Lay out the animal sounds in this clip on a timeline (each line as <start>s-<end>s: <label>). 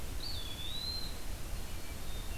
0.0s-1.5s: Eastern Wood-Pewee (Contopus virens)
1.6s-2.4s: Hermit Thrush (Catharus guttatus)